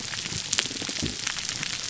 {"label": "biophony", "recorder": "SoundTrap 300"}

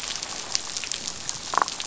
{"label": "biophony, damselfish", "recorder": "SoundTrap 500"}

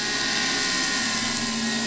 {"label": "anthrophony, boat engine", "recorder": "SoundTrap 500"}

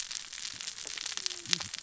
{"label": "biophony, cascading saw", "recorder": "SoundTrap 600 or HydroMoth"}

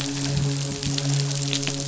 {"label": "biophony, midshipman", "recorder": "SoundTrap 500"}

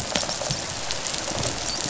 {"label": "biophony, rattle response", "recorder": "SoundTrap 500"}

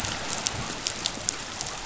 {"label": "biophony", "recorder": "SoundTrap 500"}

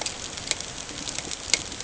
{"label": "ambient", "recorder": "HydroMoth"}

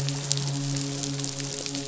{"label": "biophony, midshipman", "recorder": "SoundTrap 500"}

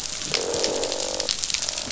{"label": "biophony, croak", "recorder": "SoundTrap 500"}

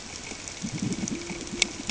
{"label": "ambient", "recorder": "HydroMoth"}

